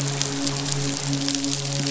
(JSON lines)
{"label": "biophony, midshipman", "recorder": "SoundTrap 500"}